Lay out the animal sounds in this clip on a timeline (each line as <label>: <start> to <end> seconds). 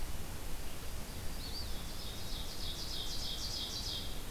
Eastern Wood-Pewee (Contopus virens): 1.3 to 2.6 seconds
Ovenbird (Seiurus aurocapilla): 1.7 to 4.3 seconds